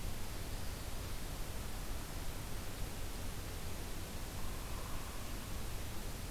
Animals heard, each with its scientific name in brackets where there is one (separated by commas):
Hairy Woodpecker (Dryobates villosus)